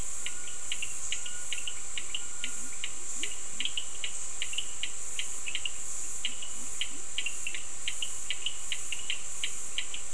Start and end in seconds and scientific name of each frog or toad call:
0.0	10.1	Sphaenorhynchus surdus
2.3	3.8	Leptodactylus latrans
6.2	7.1	Leptodactylus latrans